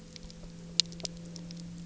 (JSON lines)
{"label": "anthrophony, boat engine", "recorder": "SoundTrap 300"}